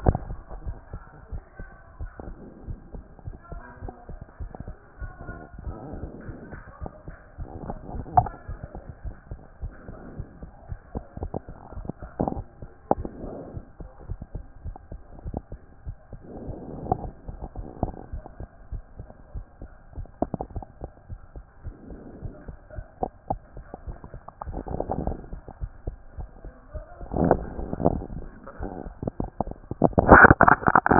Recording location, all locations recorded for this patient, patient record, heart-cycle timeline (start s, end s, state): aortic valve (AV)
aortic valve (AV)+pulmonary valve (PV)+tricuspid valve (TV)+mitral valve (MV)
#Age: Child
#Sex: Male
#Height: 142.0 cm
#Weight: 40.0 kg
#Pregnancy status: False
#Murmur: Absent
#Murmur locations: nan
#Most audible location: nan
#Systolic murmur timing: nan
#Systolic murmur shape: nan
#Systolic murmur grading: nan
#Systolic murmur pitch: nan
#Systolic murmur quality: nan
#Diastolic murmur timing: nan
#Diastolic murmur shape: nan
#Diastolic murmur grading: nan
#Diastolic murmur pitch: nan
#Diastolic murmur quality: nan
#Outcome: Normal
#Campaign: 2014 screening campaign
0.00	0.55	unannotated
0.55	0.64	diastole
0.64	0.76	S1
0.76	0.92	systole
0.92	1.02	S2
1.02	1.32	diastole
1.32	1.42	S1
1.42	1.58	systole
1.58	1.68	S2
1.68	2.00	diastole
2.00	2.10	S1
2.10	2.26	systole
2.26	2.36	S2
2.36	2.66	diastole
2.66	2.78	S1
2.78	2.94	systole
2.94	3.04	S2
3.04	3.26	diastole
3.26	3.36	S1
3.36	3.52	systole
3.52	3.62	S2
3.62	3.82	diastole
3.82	3.94	S1
3.94	4.10	systole
4.10	4.20	S2
4.20	4.40	diastole
4.40	4.50	S1
4.50	4.66	systole
4.66	4.76	S2
4.76	5.00	diastole
5.00	5.12	S1
5.12	5.26	systole
5.26	5.36	S2
5.36	5.64	diastole
5.64	5.76	S1
5.76	5.96	systole
5.96	6.08	S2
6.08	6.28	diastole
6.28	6.38	S1
6.38	6.52	systole
6.52	6.62	S2
6.62	6.82	diastole
6.82	6.90	S1
6.90	7.06	systole
7.06	7.16	S2
7.16	7.38	diastole
7.38	7.48	S1
7.48	7.64	systole
7.64	7.76	S2
7.76	30.99	unannotated